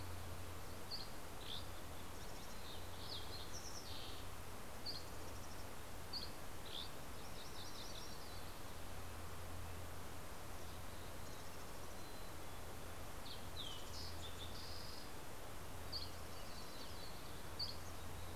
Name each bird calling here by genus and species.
Empidonax oberholseri, Passerella iliaca, Poecile gambeli, Sitta canadensis, Geothlypis tolmiei, Setophaga coronata